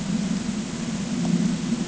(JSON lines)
{"label": "ambient", "recorder": "HydroMoth"}